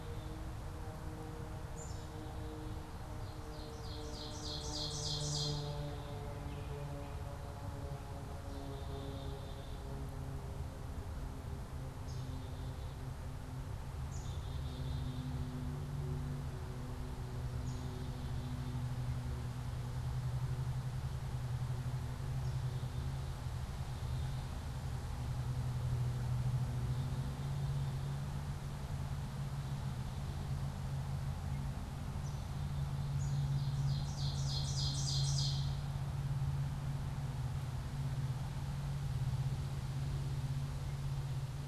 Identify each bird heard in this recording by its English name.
Black-capped Chickadee, Ovenbird